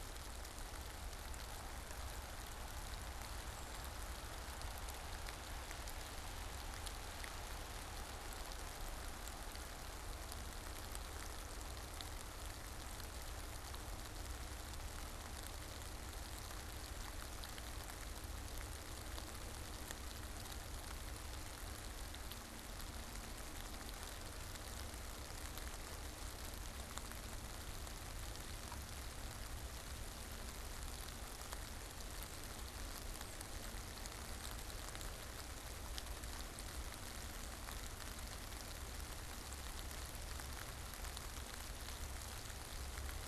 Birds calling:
unidentified bird

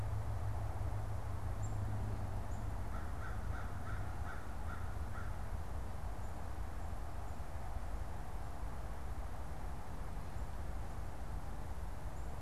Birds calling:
Black-capped Chickadee (Poecile atricapillus)
American Crow (Corvus brachyrhynchos)

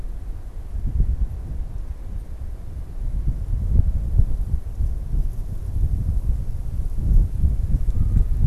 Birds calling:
Canada Goose (Branta canadensis)

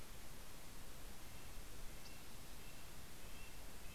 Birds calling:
Red-breasted Nuthatch (Sitta canadensis)

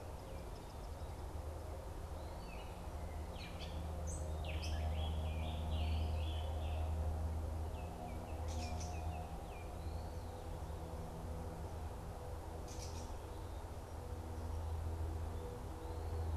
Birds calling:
Scarlet Tanager (Piranga olivacea)
Baltimore Oriole (Icterus galbula)
Gray Catbird (Dumetella carolinensis)

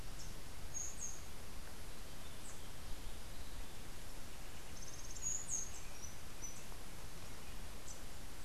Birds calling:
Rufous-tailed Hummingbird (Amazilia tzacatl)

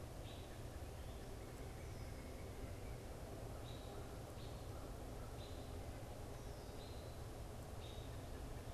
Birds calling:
American Robin (Turdus migratorius)
American Crow (Corvus brachyrhynchos)

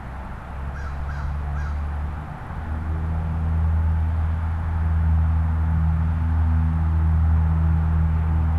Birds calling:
American Crow (Corvus brachyrhynchos)

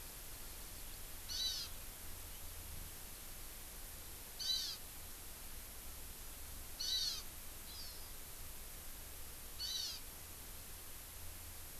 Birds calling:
Hawaii Amakihi (Chlorodrepanis virens)

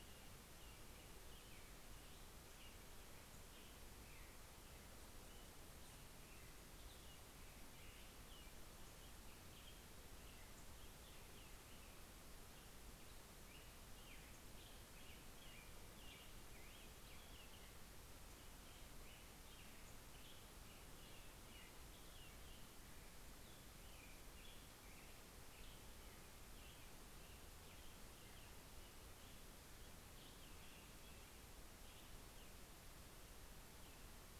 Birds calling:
American Robin (Turdus migratorius)

